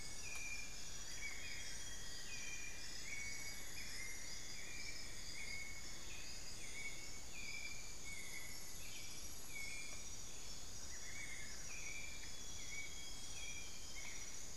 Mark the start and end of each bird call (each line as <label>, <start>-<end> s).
Elegant Woodcreeper (Xiphorhynchus elegans), 0.0-1.9 s
White-necked Thrush (Turdus albicollis), 0.0-14.6 s
Amazonian Grosbeak (Cyanoloxia rothschildii), 0.5-3.1 s
unidentified bird, 0.7-1.9 s
Cinnamon-throated Woodcreeper (Dendrexetastes rufigula), 1.0-6.7 s
Amazonian Barred-Woodcreeper (Dendrocolaptes certhia), 10.6-12.0 s
Amazonian Grosbeak (Cyanoloxia rothschildii), 11.8-14.4 s